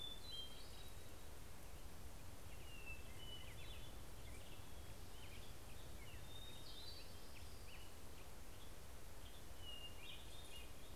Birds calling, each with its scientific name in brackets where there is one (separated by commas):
Hermit Thrush (Catharus guttatus), Black-headed Grosbeak (Pheucticus melanocephalus)